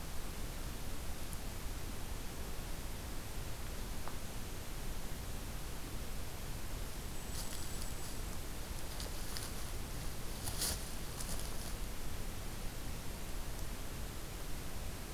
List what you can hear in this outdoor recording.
Blackpoll Warbler